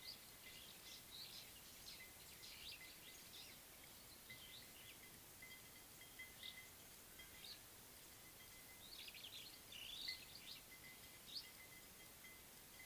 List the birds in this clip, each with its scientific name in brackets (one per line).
Superb Starling (Lamprotornis superbus)